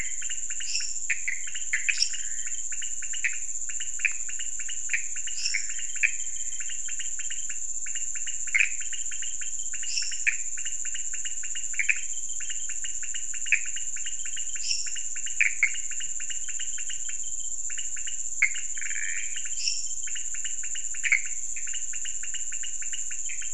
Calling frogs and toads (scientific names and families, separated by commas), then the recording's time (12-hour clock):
Leptodactylus podicipinus (Leptodactylidae), Dendropsophus minutus (Hylidae), Pithecopus azureus (Hylidae)
2:00am